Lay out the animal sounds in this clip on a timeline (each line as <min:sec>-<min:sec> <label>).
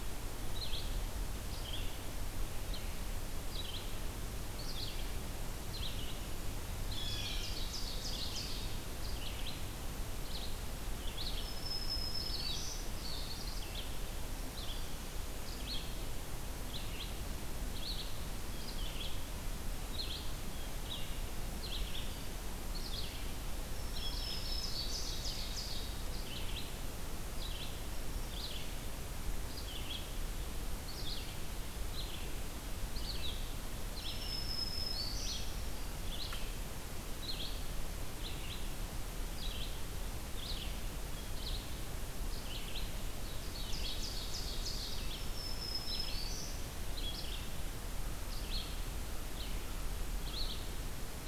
0:00.0-0:14.0 Red-eyed Vireo (Vireo olivaceus)
0:06.6-0:07.9 Blue Jay (Cyanocitta cristata)
0:06.8-0:08.8 Ovenbird (Seiurus aurocapilla)
0:11.0-0:12.9 Black-throated Green Warbler (Setophaga virens)
0:14.4-0:51.3 Red-eyed Vireo (Vireo olivaceus)
0:23.5-0:25.3 Black-throated Green Warbler (Setophaga virens)
0:23.9-0:26.0 Ovenbird (Seiurus aurocapilla)
0:33.9-0:35.8 Black-throated Green Warbler (Setophaga virens)
0:43.2-0:45.2 Ovenbird (Seiurus aurocapilla)
0:45.0-0:46.7 Black-throated Green Warbler (Setophaga virens)